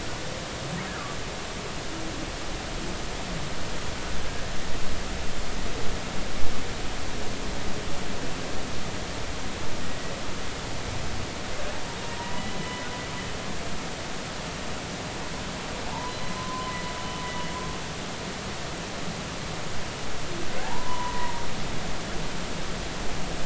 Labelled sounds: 9.9	10.1	humpback whale, 1.9 to 2.0 kHz
12.1	12.9	humpback whale, 0.90 to 3.0 kHz
16.1	16.7	humpback whale, 0.96 to 4.1 kHz
20.6	21.5	humpback whale, 0.80 to 1.1 kHz

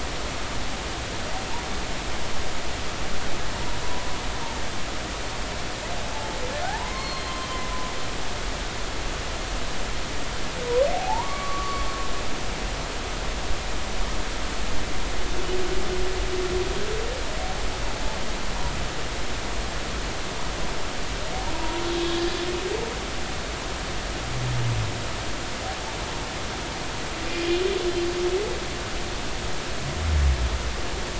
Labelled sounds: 3.8	4.1	humpback whale, 0.96 to 1.0 kHz
6.6	7.5	humpback whale, 0.80 to 4.4 kHz
10.9	11.9	humpback whale, 0.80 to 1.2 kHz
21.5	21.8	humpback whale, 0.90 to 1.0 kHz

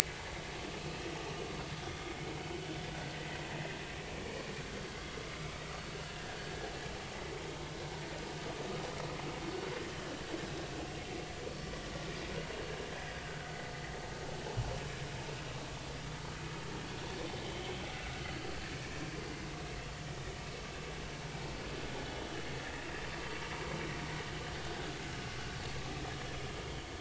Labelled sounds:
1.8	2.1	vessel noise, 3.3 to 3.6 kHz
6.2	6.5	vessel noise, 1.6 to 1.9 kHz
26.6	26.9	vessel noise, 2.9 to 3.3 kHz

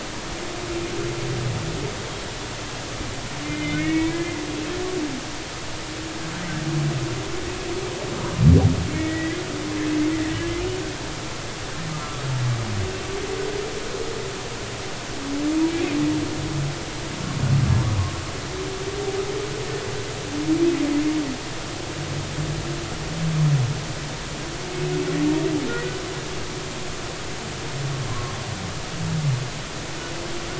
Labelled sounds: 3.4	4.4	humpback whale, 1.8 to 2.6 kHz
8.9	9.4	humpback whale, 1.8 to 2.3 kHz
10.2	10.4	humpback whale, 1.8 to 2.0 kHz
11.9	12.2	humpback whale, 1.1 to 1.4 kHz
25.7	25.9	humpback whale, 1.8 to 2.0 kHz
28.1	28.3	humpback whale, 0.99 to 1.2 kHz

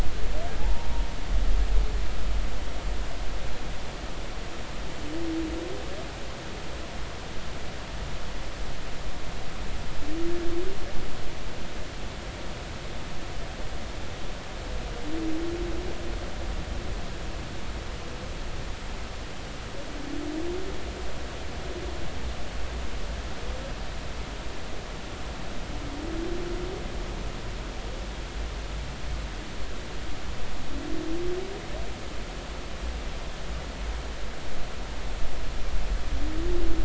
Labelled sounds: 0.6	0.9	humpback whale, 0.80 to 0.99 kHz

